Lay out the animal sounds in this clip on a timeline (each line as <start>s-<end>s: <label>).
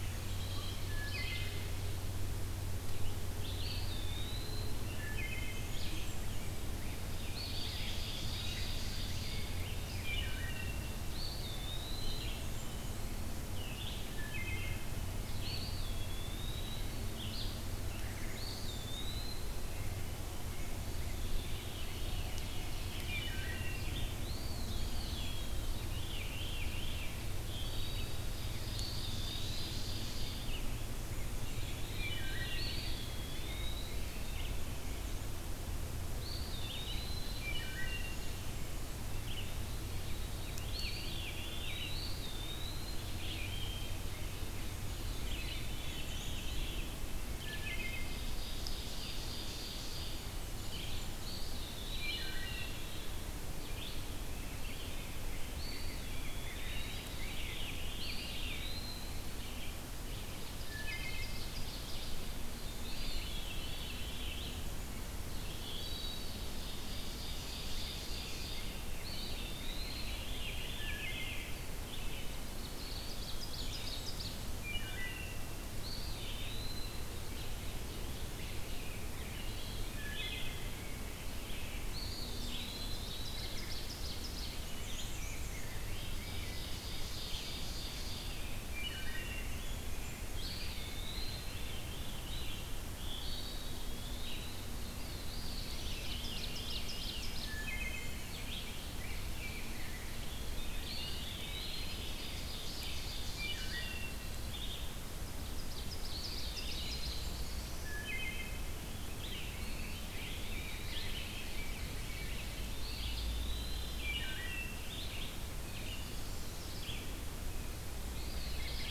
0.0s-0.5s: Blackburnian Warbler (Setophaga fusca)
0.0s-43.6s: Red-eyed Vireo (Vireo olivaceus)
0.8s-1.8s: Wood Thrush (Hylocichla mustelina)
3.4s-4.9s: Eastern Wood-Pewee (Contopus virens)
4.9s-5.9s: Wood Thrush (Hylocichla mustelina)
5.4s-6.6s: Blackburnian Warbler (Setophaga fusca)
6.3s-10.2s: Rose-breasted Grosbeak (Pheucticus ludovicianus)
7.2s-8.9s: Eastern Wood-Pewee (Contopus virens)
7.6s-9.6s: Ovenbird (Seiurus aurocapilla)
9.9s-10.9s: Wood Thrush (Hylocichla mustelina)
11.0s-12.6s: Eastern Wood-Pewee (Contopus virens)
11.4s-13.0s: Blackburnian Warbler (Setophaga fusca)
14.0s-14.9s: Wood Thrush (Hylocichla mustelina)
15.3s-17.0s: Eastern Wood-Pewee (Contopus virens)
17.9s-19.4s: Blackburnian Warbler (Setophaga fusca)
18.3s-19.8s: Eastern Wood-Pewee (Contopus virens)
21.0s-22.9s: Veery (Catharus fuscescens)
22.3s-23.9s: Ovenbird (Seiurus aurocapilla)
23.0s-23.9s: Wood Thrush (Hylocichla mustelina)
24.0s-25.7s: Eastern Wood-Pewee (Contopus virens)
24.4s-25.8s: Blackburnian Warbler (Setophaga fusca)
25.6s-27.4s: Veery (Catharus fuscescens)
27.4s-28.3s: Wood Thrush (Hylocichla mustelina)
28.0s-30.4s: Ovenbird (Seiurus aurocapilla)
28.5s-29.8s: Eastern Wood-Pewee (Contopus virens)
31.2s-32.9s: Veery (Catharus fuscescens)
32.0s-32.7s: Wood Thrush (Hylocichla mustelina)
32.3s-34.1s: Eastern Wood-Pewee (Contopus virens)
34.5s-35.3s: Black-and-white Warbler (Mniotilta varia)
36.0s-37.5s: Eastern Wood-Pewee (Contopus virens)
36.8s-38.6s: Ovenbird (Seiurus aurocapilla)
37.2s-38.2s: Wood Thrush (Hylocichla mustelina)
40.2s-42.0s: Veery (Catharus fuscescens)
40.6s-43.1s: Eastern Wood-Pewee (Contopus virens)
43.3s-44.1s: Wood Thrush (Hylocichla mustelina)
43.8s-45.3s: Ovenbird (Seiurus aurocapilla)
44.9s-47.2s: Veery (Catharus fuscescens)
45.2s-103.0s: Red-eyed Vireo (Vireo olivaceus)
45.5s-46.6s: Black-and-white Warbler (Mniotilta varia)
47.4s-48.1s: Wood Thrush (Hylocichla mustelina)
47.6s-50.4s: Ovenbird (Seiurus aurocapilla)
49.8s-51.5s: Blackburnian Warbler (Setophaga fusca)
51.3s-52.4s: Eastern Wood-Pewee (Contopus virens)
51.8s-53.0s: Wood Thrush (Hylocichla mustelina)
55.2s-57.7s: Rose-breasted Grosbeak (Pheucticus ludovicianus)
55.5s-57.2s: Eastern Wood-Pewee (Contopus virens)
57.1s-58.8s: Veery (Catharus fuscescens)
57.9s-59.2s: Eastern Wood-Pewee (Contopus virens)
59.9s-62.5s: Ovenbird (Seiurus aurocapilla)
60.7s-61.5s: Wood Thrush (Hylocichla mustelina)
62.5s-64.5s: Veery (Catharus fuscescens)
62.8s-64.3s: Eastern Wood-Pewee (Contopus virens)
65.7s-66.4s: Wood Thrush (Hylocichla mustelina)
66.2s-69.0s: Ovenbird (Seiurus aurocapilla)
66.9s-70.6s: Rose-breasted Grosbeak (Pheucticus ludovicianus)
69.0s-70.3s: Eastern Wood-Pewee (Contopus virens)
69.8s-71.8s: Veery (Catharus fuscescens)
70.7s-71.5s: Wood Thrush (Hylocichla mustelina)
71.8s-74.7s: Ovenbird (Seiurus aurocapilla)
72.7s-74.2s: Eastern Wood-Pewee (Contopus virens)
73.3s-74.6s: Blackburnian Warbler (Setophaga fusca)
74.5s-75.4s: Wood Thrush (Hylocichla mustelina)
75.8s-77.0s: Eastern Wood-Pewee (Contopus virens)
77.0s-78.9s: Ovenbird (Seiurus aurocapilla)
77.9s-80.3s: Rose-breasted Grosbeak (Pheucticus ludovicianus)
79.9s-80.7s: Wood Thrush (Hylocichla mustelina)
81.9s-83.6s: Eastern Wood-Pewee (Contopus virens)
82.4s-84.6s: Ovenbird (Seiurus aurocapilla)
84.4s-85.6s: Black-and-white Warbler (Mniotilta varia)
84.6s-86.7s: Rose-breasted Grosbeak (Pheucticus ludovicianus)
85.9s-88.5s: Ovenbird (Seiurus aurocapilla)
88.6s-89.5s: Wood Thrush (Hylocichla mustelina)
89.2s-90.6s: Blackburnian Warbler (Setophaga fusca)
90.3s-91.6s: Eastern Wood-Pewee (Contopus virens)
91.1s-92.6s: Veery (Catharus fuscescens)
93.2s-94.5s: Eastern Wood-Pewee (Contopus virens)
94.6s-96.1s: Black-throated Blue Warbler (Setophaga caerulescens)
95.2s-97.3s: Veery (Catharus fuscescens)
95.6s-97.6s: Ovenbird (Seiurus aurocapilla)
96.9s-98.6s: Blackburnian Warbler (Setophaga fusca)
97.3s-98.3s: Wood Thrush (Hylocichla mustelina)
98.1s-102.6s: Rose-breasted Grosbeak (Pheucticus ludovicianus)
98.6s-100.3s: Ovenbird (Seiurus aurocapilla)
100.9s-102.0s: Eastern Wood-Pewee (Contopus virens)
101.3s-103.5s: Ovenbird (Seiurus aurocapilla)
103.3s-118.9s: Red-eyed Vireo (Vireo olivaceus)
103.3s-104.3s: Wood Thrush (Hylocichla mustelina)
105.2s-107.3s: Ovenbird (Seiurus aurocapilla)
106.0s-107.3s: Eastern Wood-Pewee (Contopus virens)
106.3s-107.8s: Blackburnian Warbler (Setophaga fusca)
107.7s-108.7s: Wood Thrush (Hylocichla mustelina)
109.1s-113.2s: Rose-breasted Grosbeak (Pheucticus ludovicianus)
109.5s-110.9s: Eastern Wood-Pewee (Contopus virens)
111.0s-112.8s: Ovenbird (Seiurus aurocapilla)
112.8s-114.1s: Eastern Wood-Pewee (Contopus virens)
113.9s-114.9s: Wood Thrush (Hylocichla mustelina)
115.4s-117.0s: Blackburnian Warbler (Setophaga fusca)
115.5s-116.7s: Black-throated Blue Warbler (Setophaga caerulescens)
118.1s-118.9s: Eastern Wood-Pewee (Contopus virens)
118.4s-118.9s: Ovenbird (Seiurus aurocapilla)